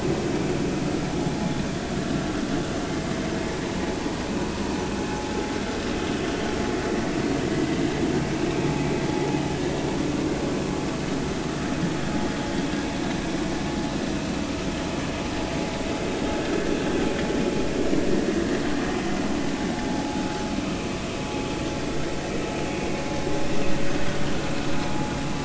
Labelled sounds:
18.3	18.6	vessel noise, 1.6 to 2.0 kHz
19.9	20.2	vessel noise, 0.80 to 0.96 kHz

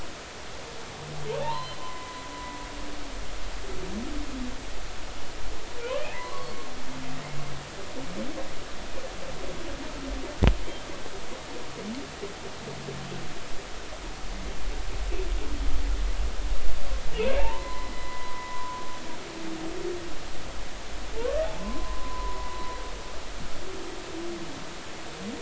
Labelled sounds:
1.4	2.1	humpback whale, 0.80 to 4.3 kHz
6.2	6.5	humpback whale, 0.93 to 1.2 kHz
17.4	18.8	humpback whale, 0.80 to 2.0 kHz
21.1	22.5	humpback whale, 0.86 to 1.2 kHz

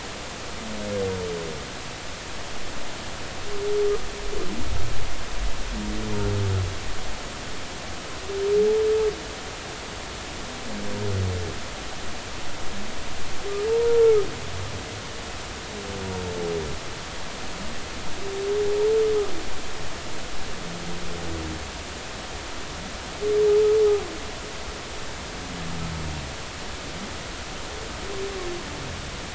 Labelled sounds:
13.7	14.0	humpback whale, 0.86 to 0.99 kHz

